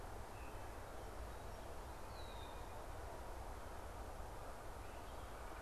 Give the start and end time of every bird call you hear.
2.1s-2.8s: Red-winged Blackbird (Agelaius phoeniceus)

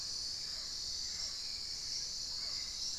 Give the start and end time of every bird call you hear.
0.0s-3.0s: Hauxwell's Thrush (Turdus hauxwelli)
0.0s-3.0s: Mealy Parrot (Amazona farinosa)

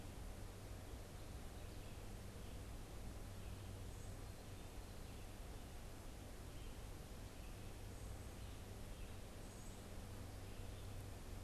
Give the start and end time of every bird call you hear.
6.4s-11.4s: Red-eyed Vireo (Vireo olivaceus)
9.4s-9.9s: Northern Cardinal (Cardinalis cardinalis)

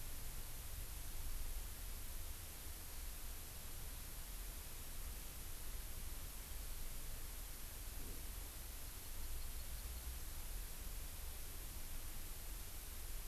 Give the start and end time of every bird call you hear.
8.8s-10.1s: Hawaii Amakihi (Chlorodrepanis virens)

